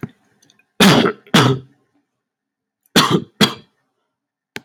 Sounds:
Cough